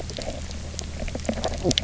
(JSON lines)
{"label": "biophony, knock croak", "recorder": "SoundTrap 300"}